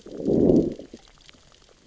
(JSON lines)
{"label": "biophony, growl", "recorder": "SoundTrap 600 or HydroMoth"}